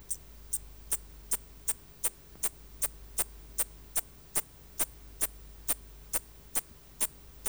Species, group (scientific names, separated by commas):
Eupholidoptera smyrnensis, Orthoptera